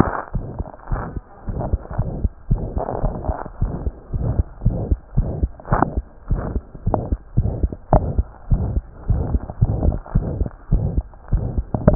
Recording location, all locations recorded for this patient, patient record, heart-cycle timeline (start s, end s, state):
tricuspid valve (TV)
aortic valve (AV)+pulmonary valve (PV)+tricuspid valve (TV)+mitral valve (MV)
#Age: Child
#Sex: Male
#Height: 89.0 cm
#Weight: 11.6 kg
#Pregnancy status: False
#Murmur: Present
#Murmur locations: aortic valve (AV)+mitral valve (MV)+pulmonary valve (PV)+tricuspid valve (TV)
#Most audible location: aortic valve (AV)
#Systolic murmur timing: Mid-systolic
#Systolic murmur shape: Diamond
#Systolic murmur grading: III/VI or higher
#Systolic murmur pitch: High
#Systolic murmur quality: Harsh
#Diastolic murmur timing: nan
#Diastolic murmur shape: nan
#Diastolic murmur grading: nan
#Diastolic murmur pitch: nan
#Diastolic murmur quality: nan
#Outcome: Abnormal
#Campaign: 2015 screening campaign
0.00	0.32	unannotated
0.32	0.46	S1
0.46	0.56	systole
0.56	0.66	S2
0.66	0.87	diastole
0.87	0.99	S1
0.99	1.12	systole
1.12	1.22	S2
1.22	1.45	diastole
1.45	1.54	S1
1.54	1.68	systole
1.68	1.79	S2
1.79	1.96	diastole
1.96	2.06	S1
2.06	2.20	systole
2.20	2.32	S2
2.32	2.48	diastole
2.48	2.60	S1
2.60	2.72	systole
2.72	2.82	S2
2.82	3.01	diastole
3.01	3.12	S1
3.12	3.26	systole
3.26	3.36	S2
3.36	3.58	diastole
3.58	3.72	S1
3.72	3.82	systole
3.82	3.94	S2
3.94	4.10	diastole
4.10	4.21	S1
4.21	4.36	systole
4.36	4.48	S2
4.48	4.61	diastole
4.61	4.74	S1
4.74	4.86	systole
4.86	4.98	S2
4.98	5.12	diastole
5.12	5.26	S1
5.26	5.40	systole
5.40	5.50	S2
5.50	5.67	diastole
5.67	5.80	S1
5.80	5.92	systole
5.92	6.04	S2
6.04	6.25	diastole
6.25	6.39	S1
6.39	6.51	systole
6.51	6.64	S2
6.64	6.84	diastole
6.84	6.95	S1
6.95	7.06	systole
7.06	7.19	S2
7.19	7.34	diastole
7.34	7.46	S1
7.46	7.59	systole
7.59	7.72	S2
7.72	11.95	unannotated